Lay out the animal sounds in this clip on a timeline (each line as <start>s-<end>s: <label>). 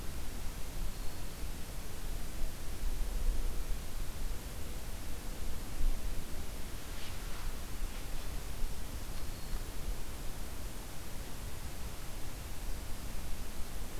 0.9s-1.4s: Black-throated Green Warbler (Setophaga virens)
9.0s-9.7s: Black-throated Green Warbler (Setophaga virens)